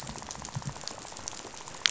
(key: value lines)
label: biophony, rattle
recorder: SoundTrap 500